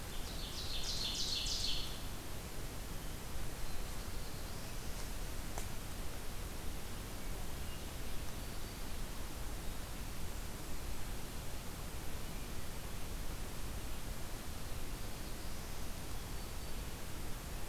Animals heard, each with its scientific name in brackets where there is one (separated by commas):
Black-throated Blue Warbler (Setophaga caerulescens), Hermit Thrush (Catharus guttatus), Black-throated Green Warbler (Setophaga virens), Ovenbird (Seiurus aurocapilla)